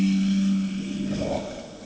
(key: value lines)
label: anthrophony, boat engine
recorder: HydroMoth